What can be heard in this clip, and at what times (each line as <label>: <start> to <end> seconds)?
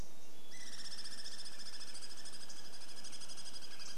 Hermit Thrush song: 0 to 2 seconds
Douglas squirrel rattle: 0 to 4 seconds
unidentified bird chip note: 2 to 4 seconds